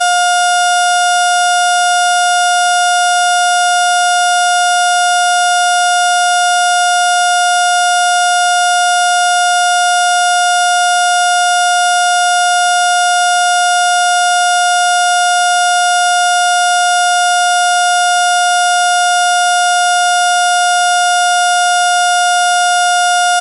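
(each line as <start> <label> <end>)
0.0 A heartbeat monitor produces a long, steady electronic sound. 23.4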